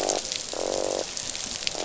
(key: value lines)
label: biophony, croak
recorder: SoundTrap 500